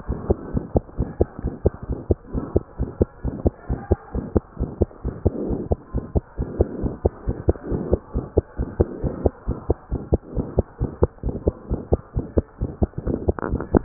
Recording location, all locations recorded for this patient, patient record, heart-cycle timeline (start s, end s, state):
pulmonary valve (PV)
aortic valve (AV)+pulmonary valve (PV)+tricuspid valve (TV)+mitral valve (MV)
#Age: Child
#Sex: Female
#Height: 125.0 cm
#Weight: 31.9 kg
#Pregnancy status: False
#Murmur: Present
#Murmur locations: aortic valve (AV)+mitral valve (MV)+pulmonary valve (PV)+tricuspid valve (TV)
#Most audible location: pulmonary valve (PV)
#Systolic murmur timing: Mid-systolic
#Systolic murmur shape: Diamond
#Systolic murmur grading: II/VI
#Systolic murmur pitch: Medium
#Systolic murmur quality: Harsh
#Diastolic murmur timing: nan
#Diastolic murmur shape: nan
#Diastolic murmur grading: nan
#Diastolic murmur pitch: nan
#Diastolic murmur quality: nan
#Outcome: Abnormal
#Campaign: 2015 screening campaign
0.00	0.38	unannotated
0.38	0.54	diastole
0.54	0.64	S1
0.64	0.74	systole
0.74	0.82	S2
0.82	0.98	diastole
0.98	1.10	S1
1.10	1.20	systole
1.20	1.28	S2
1.28	1.44	diastole
1.44	1.54	S1
1.54	1.64	systole
1.64	1.72	S2
1.72	1.90	diastole
1.90	1.98	S1
1.98	2.10	systole
2.10	2.18	S2
2.18	2.36	diastole
2.36	2.46	S1
2.46	2.56	systole
2.56	2.64	S2
2.64	2.80	diastole
2.80	2.90	S1
2.90	3.00	systole
3.00	3.08	S2
3.08	3.24	diastole
3.24	3.36	S1
3.36	3.46	systole
3.46	3.54	S2
3.54	3.70	diastole
3.70	3.80	S1
3.80	3.92	systole
3.92	3.98	S2
3.98	4.14	diastole
4.14	4.24	S1
4.24	4.36	systole
4.36	4.42	S2
4.42	4.60	diastole
4.60	4.72	S1
4.72	4.82	systole
4.82	4.88	S2
4.88	5.06	diastole
5.06	5.16	S1
5.16	5.26	systole
5.26	5.38	S2
5.38	5.48	diastole
5.48	5.57	S1
5.57	5.70	systole
5.70	5.78	S2
5.78	5.94	diastole
5.94	6.02	S1
6.02	6.15	systole
6.15	6.24	S2
6.24	6.38	diastole
6.38	6.47	S1
6.47	6.59	systole
6.59	6.66	S2
6.66	6.82	diastole
6.82	6.90	S1
6.90	7.04	systole
7.04	7.12	S2
7.12	7.28	diastole
7.28	7.36	S1
7.36	7.48	systole
7.48	7.56	S2
7.56	7.70	diastole
7.70	7.84	S1
7.84	7.92	systole
7.92	8.00	S2
8.00	8.16	diastole
8.16	8.24	S1
8.24	8.36	systole
8.36	8.42	S2
8.42	8.60	diastole
8.60	8.70	S1
8.70	8.80	systole
8.80	8.90	S2
8.90	9.04	diastole
9.04	9.12	S1
9.12	9.24	systole
9.24	9.32	S2
9.32	9.48	diastole
9.48	9.58	S1
9.58	9.70	systole
9.70	9.78	S2
9.78	9.92	diastole
9.92	10.04	S1
10.04	10.12	systole
10.12	10.20	S2
10.20	10.38	diastole
10.38	10.46	S1
10.46	10.60	systole
10.60	10.66	S2
10.66	10.82	diastole
10.82	10.92	S1
10.92	11.04	systole
11.04	11.10	S2
11.10	11.26	diastole
11.26	11.36	S1
11.36	11.48	systole
11.48	11.54	S2
11.54	11.70	diastole
11.70	11.82	S1
11.82	11.92	systole
11.92	12.00	S2
12.00	12.16	diastole
12.16	12.25	S1
12.25	12.36	systole
12.36	12.44	S2
12.44	12.62	diastole
12.62	12.72	S1
12.72	12.82	systole
12.82	12.90	S2
12.90	13.06	diastole
13.06	13.84	unannotated